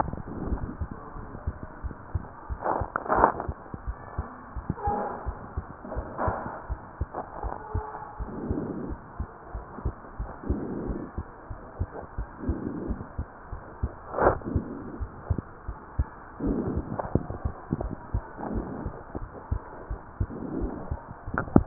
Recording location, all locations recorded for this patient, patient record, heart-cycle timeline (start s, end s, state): pulmonary valve (PV)
aortic valve (AV)+pulmonary valve (PV)+tricuspid valve (TV)+mitral valve (MV)
#Age: Child
#Sex: Female
#Height: 131.0 cm
#Weight: 27.4 kg
#Pregnancy status: False
#Murmur: Absent
#Murmur locations: nan
#Most audible location: nan
#Systolic murmur timing: nan
#Systolic murmur shape: nan
#Systolic murmur grading: nan
#Systolic murmur pitch: nan
#Systolic murmur quality: nan
#Diastolic murmur timing: nan
#Diastolic murmur shape: nan
#Diastolic murmur grading: nan
#Diastolic murmur pitch: nan
#Diastolic murmur quality: nan
#Outcome: Abnormal
#Campaign: 2015 screening campaign
0.00	1.54	unannotated
1.54	1.80	diastole
1.80	1.92	S1
1.92	2.11	systole
2.11	2.22	S2
2.22	2.48	diastole
2.48	2.58	S1
2.58	2.78	systole
2.78	2.89	S2
2.89	3.09	diastole
3.09	3.25	S1
3.25	3.47	systole
3.47	3.56	S2
3.56	3.83	diastole
3.83	3.95	S1
3.95	4.17	systole
4.17	4.27	S2
4.27	4.55	diastole
4.55	4.63	S1
4.63	4.85	systole
4.85	4.92	S2
4.92	5.25	diastole
5.25	5.35	S1
5.35	5.55	systole
5.55	5.63	S2
5.63	5.95	diastole
5.95	6.04	S1
6.04	6.24	systole
6.24	6.32	S2
6.32	6.69	diastole
6.69	6.78	S1
6.78	6.99	systole
6.99	7.06	S2
7.06	7.42	diastole
7.42	7.51	S1
7.51	7.73	systole
7.73	7.82	S2
7.82	8.18	diastole
8.18	8.27	S1
8.27	8.46	systole
8.46	8.58	S2
8.58	8.87	diastole
8.87	8.99	S1
8.99	9.18	systole
9.18	9.28	S2
9.28	9.53	diastole
9.53	9.64	S1
9.64	9.84	systole
9.84	9.94	S2
9.94	10.19	diastole
10.19	10.29	S1
10.29	10.48	systole
10.48	10.56	S2
10.56	10.86	diastole
10.86	10.95	S1
10.95	11.14	systole
11.14	11.27	S2
11.27	11.47	diastole
11.47	11.58	S1
11.58	11.78	systole
11.78	11.88	S2
11.88	12.16	diastole
12.16	12.28	S1
12.28	12.47	systole
12.47	12.56	S2
12.56	12.87	diastole
12.87	12.96	S1
12.96	13.17	systole
13.17	13.26	S2
13.26	13.50	diastole
13.50	13.59	S1
13.59	13.80	systole
13.80	13.91	S2
13.91	14.13	diastole
14.13	21.66	unannotated